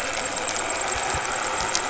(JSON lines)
{"label": "anthrophony, boat engine", "recorder": "SoundTrap 500"}